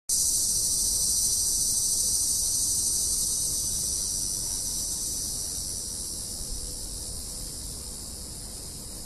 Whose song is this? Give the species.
Neotibicen linnei